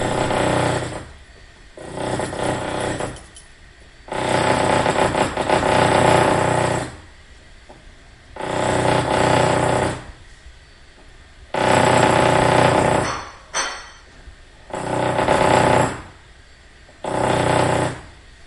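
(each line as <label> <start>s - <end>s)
A drill bores into a surface with a loud, steady hum. 0.0s - 3.2s
A pin nail tapping gently, creating a soft, precise sound. 3.0s - 3.7s
A drill bores into a surface with a loud, steady hum. 4.1s - 7.0s
A drill bores into a surface with a loud, steady hum. 8.3s - 10.1s
A drill bores into a surface with a loud, steady hum. 11.5s - 13.0s
Construction tools hitting a surface. 13.1s - 14.3s
A drill bores into a surface with a loud, steady hum. 14.7s - 16.0s
A drill bores into a surface with a loud, steady hum. 17.0s - 18.5s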